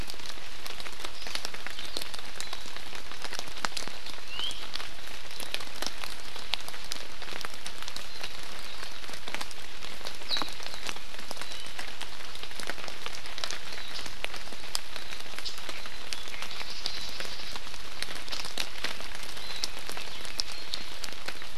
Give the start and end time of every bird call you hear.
4.3s-4.5s: Iiwi (Drepanis coccinea)

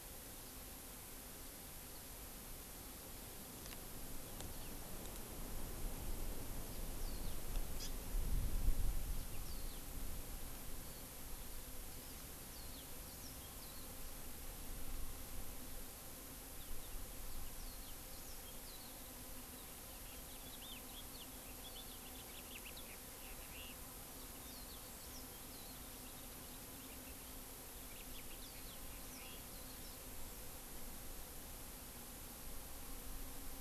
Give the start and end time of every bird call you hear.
7.0s-7.5s: Warbling White-eye (Zosterops japonicus)
7.7s-8.0s: Hawaii Amakihi (Chlorodrepanis virens)
9.4s-9.9s: Warbling White-eye (Zosterops japonicus)
11.9s-12.4s: Hawaii Amakihi (Chlorodrepanis virens)
12.5s-13.9s: Warbling White-eye (Zosterops japonicus)
17.6s-19.0s: Warbling White-eye (Zosterops japonicus)
19.9s-23.9s: House Finch (Haemorhous mexicanus)
24.3s-25.9s: Warbling White-eye (Zosterops japonicus)
27.8s-29.7s: House Finch (Haemorhous mexicanus)
28.4s-30.1s: Warbling White-eye (Zosterops japonicus)

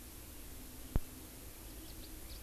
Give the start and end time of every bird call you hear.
1.8s-2.4s: House Finch (Haemorhous mexicanus)

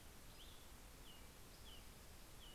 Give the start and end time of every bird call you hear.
0.0s-0.8s: Cassin's Vireo (Vireo cassinii)
0.7s-2.5s: American Robin (Turdus migratorius)

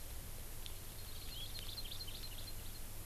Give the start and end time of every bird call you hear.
0.9s-2.9s: Hawaii Amakihi (Chlorodrepanis virens)

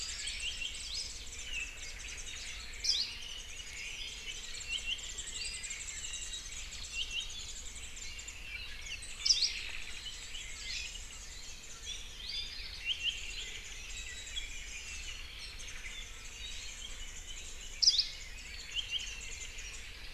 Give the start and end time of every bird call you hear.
0.0s-0.8s: Hawaii Amakihi (Chlorodrepanis virens)
0.0s-2.8s: Warbling White-eye (Zosterops japonicus)
0.4s-0.8s: Apapane (Himatione sanguinea)
2.8s-3.2s: Hawaii Akepa (Loxops coccineus)
3.2s-3.9s: Warbling White-eye (Zosterops japonicus)
3.6s-4.3s: Omao (Myadestes obscurus)
4.3s-8.5s: Warbling White-eye (Zosterops japonicus)
4.7s-5.3s: Apapane (Himatione sanguinea)
6.9s-7.5s: Apapane (Himatione sanguinea)
8.8s-12.2s: Warbling White-eye (Zosterops japonicus)
9.2s-9.6s: Hawaii Akepa (Loxops coccineus)
9.3s-10.3s: Omao (Myadestes obscurus)
12.7s-18.0s: Warbling White-eye (Zosterops japonicus)
12.8s-13.3s: Apapane (Himatione sanguinea)
17.8s-18.2s: Hawaii Akepa (Loxops coccineus)
18.4s-20.1s: Warbling White-eye (Zosterops japonicus)
18.7s-19.2s: Apapane (Himatione sanguinea)

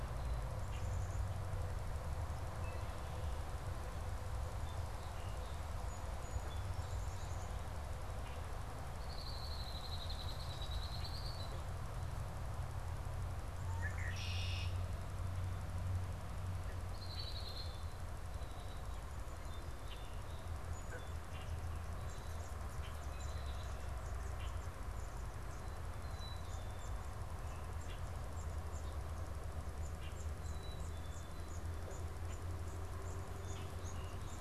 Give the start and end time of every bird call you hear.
4.5s-7.6s: Song Sparrow (Melospiza melodia)
8.8s-11.8s: Red-winged Blackbird (Agelaius phoeniceus)
13.4s-18.5s: Red-winged Blackbird (Agelaius phoeniceus)
20.0s-34.4s: unidentified bird
22.8s-34.4s: Black-capped Chickadee (Poecile atricapillus)

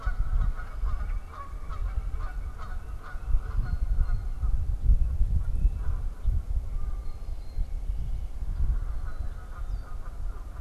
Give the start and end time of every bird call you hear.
0.0s-10.6s: Canada Goose (Branta canadensis)
0.2s-2.6s: unidentified bird
3.4s-10.6s: Blue Jay (Cyanocitta cristata)

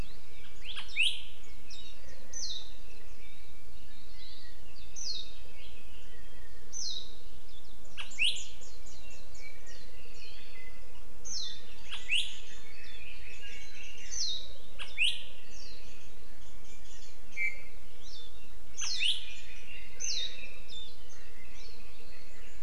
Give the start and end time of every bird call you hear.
0.9s-1.1s: Warbling White-eye (Zosterops japonicus)
1.7s-2.0s: Warbling White-eye (Zosterops japonicus)
2.3s-2.7s: Warbling White-eye (Zosterops japonicus)
4.7s-5.6s: Apapane (Himatione sanguinea)
5.0s-5.5s: Warbling White-eye (Zosterops japonicus)
6.7s-7.2s: Warbling White-eye (Zosterops japonicus)
8.1s-9.9s: Warbling White-eye (Zosterops japonicus)
8.8s-11.1s: Apapane (Himatione sanguinea)
10.2s-10.4s: Warbling White-eye (Zosterops japonicus)
11.2s-11.8s: Warbling White-eye (Zosterops japonicus)
12.6s-14.4s: Apapane (Himatione sanguinea)
14.2s-14.7s: Warbling White-eye (Zosterops japonicus)
15.5s-15.8s: Warbling White-eye (Zosterops japonicus)
16.4s-17.2s: Warbling White-eye (Zosterops japonicus)
17.4s-17.9s: Iiwi (Drepanis coccinea)
18.8s-19.2s: Warbling White-eye (Zosterops japonicus)
19.0s-20.8s: Red-billed Leiothrix (Leiothrix lutea)
20.0s-20.3s: Warbling White-eye (Zosterops japonicus)
20.7s-21.0s: Warbling White-eye (Zosterops japonicus)

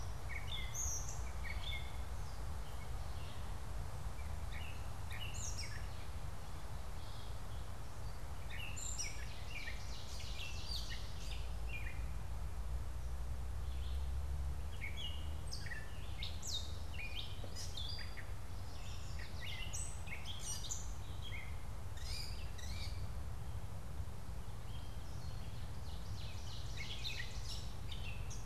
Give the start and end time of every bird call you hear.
0.0s-28.4s: Gray Catbird (Dumetella carolinensis)
8.5s-11.5s: Ovenbird (Seiurus aurocapilla)
18.3s-19.7s: Yellow Warbler (Setophaga petechia)
25.5s-27.9s: Ovenbird (Seiurus aurocapilla)

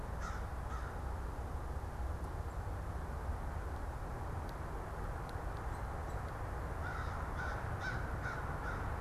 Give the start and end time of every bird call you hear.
0.0s-1.0s: American Crow (Corvus brachyrhynchos)
6.6s-8.6s: American Crow (Corvus brachyrhynchos)

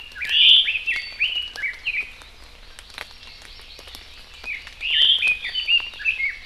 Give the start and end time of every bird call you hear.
0.0s-2.2s: Red-billed Leiothrix (Leiothrix lutea)
0.2s-0.7s: Omao (Myadestes obscurus)
2.6s-4.8s: Hawaii Amakihi (Chlorodrepanis virens)
4.3s-6.4s: Red-billed Leiothrix (Leiothrix lutea)

